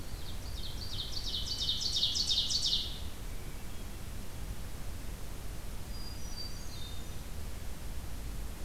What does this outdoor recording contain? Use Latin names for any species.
Seiurus aurocapilla, Catharus guttatus